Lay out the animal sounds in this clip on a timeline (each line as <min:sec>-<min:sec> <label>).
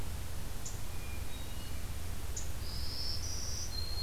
0:00.8-0:01.9 Hermit Thrush (Catharus guttatus)
0:02.6-0:04.0 Black-throated Green Warbler (Setophaga virens)